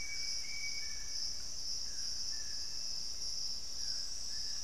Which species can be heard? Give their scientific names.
Celeus torquatus, Thamnomanes ardesiacus